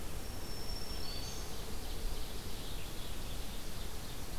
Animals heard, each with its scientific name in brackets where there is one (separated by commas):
Ovenbird (Seiurus aurocapilla), Black-throated Green Warbler (Setophaga virens)